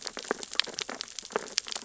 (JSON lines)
{"label": "biophony, sea urchins (Echinidae)", "recorder": "SoundTrap 600 or HydroMoth"}